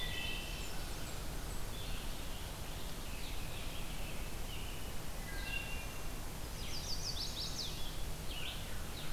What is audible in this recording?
Wood Thrush, Blue-headed Vireo, Blackburnian Warbler, American Robin, Red-eyed Vireo, Chestnut-sided Warbler